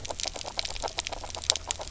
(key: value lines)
label: biophony, grazing
recorder: SoundTrap 300